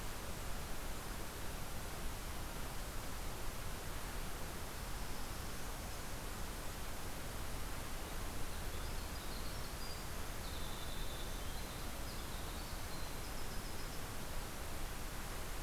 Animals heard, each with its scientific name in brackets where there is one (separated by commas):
Winter Wren (Troglodytes hiemalis)